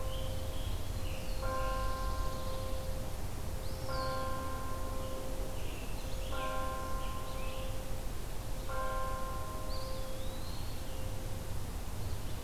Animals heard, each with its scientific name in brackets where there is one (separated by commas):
Eastern Wood-Pewee (Contopus virens), Scarlet Tanager (Piranga olivacea), Black-throated Blue Warbler (Setophaga caerulescens)